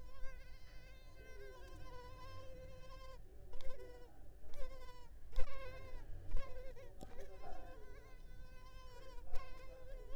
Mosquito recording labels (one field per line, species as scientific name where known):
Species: Culex pipiens complex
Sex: female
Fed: unfed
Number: one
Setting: cup